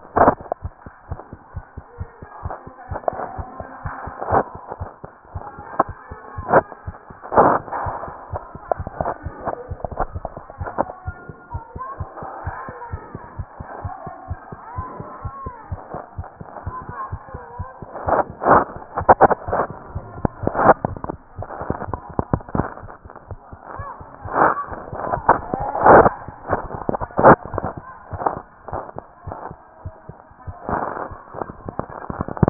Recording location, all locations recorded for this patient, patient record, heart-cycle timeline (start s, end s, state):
tricuspid valve (TV)
aortic valve (AV)+pulmonary valve (PV)+tricuspid valve (TV)+mitral valve (MV)
#Age: Child
#Sex: Male
#Height: 101.0 cm
#Weight: 18.5 kg
#Pregnancy status: False
#Murmur: Absent
#Murmur locations: nan
#Most audible location: nan
#Systolic murmur timing: nan
#Systolic murmur shape: nan
#Systolic murmur grading: nan
#Systolic murmur pitch: nan
#Systolic murmur quality: nan
#Diastolic murmur timing: nan
#Diastolic murmur shape: nan
#Diastolic murmur grading: nan
#Diastolic murmur pitch: nan
#Diastolic murmur quality: nan
#Outcome: Abnormal
#Campaign: 2015 screening campaign
0.00	11.51	unannotated
11.51	11.62	S1
11.62	11.73	systole
11.73	11.82	S2
11.82	12.00	diastole
12.00	12.08	S1
12.08	12.20	systole
12.20	12.28	S2
12.28	12.45	diastole
12.45	12.54	S1
12.54	12.66	systole
12.66	12.76	S2
12.76	12.90	diastole
12.90	13.02	S1
13.02	13.14	systole
13.14	13.22	S2
13.22	13.38	diastole
13.38	13.48	S1
13.48	13.57	systole
13.57	13.64	S2
13.64	13.84	diastole
13.84	13.94	S1
13.94	14.05	systole
14.05	14.12	S2
14.12	14.28	diastole
14.28	14.38	S1
14.38	14.51	systole
14.51	14.57	S2
14.57	14.76	diastole
14.76	14.84	S1
14.84	14.98	systole
14.98	15.05	S2
15.05	15.23	diastole
15.23	15.32	S1
15.32	15.44	systole
15.44	15.54	S2
15.54	15.70	diastole
15.70	15.80	S1
15.80	15.92	systole
15.92	15.98	S2
15.98	16.18	diastole
16.18	16.26	S1
16.26	16.39	systole
16.39	16.48	S2
16.48	16.65	diastole
16.65	16.76	S1
16.76	16.87	systole
16.87	16.96	S2
16.96	17.12	diastole
17.12	17.19	S1
17.19	17.33	systole
17.33	17.40	S2
17.40	17.58	diastole
17.58	17.66	S1
17.66	17.81	systole
17.81	17.86	S2
17.86	32.50	unannotated